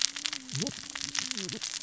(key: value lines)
label: biophony, cascading saw
recorder: SoundTrap 600 or HydroMoth